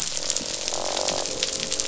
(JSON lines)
{"label": "biophony, croak", "recorder": "SoundTrap 500"}